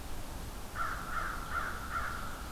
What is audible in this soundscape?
American Crow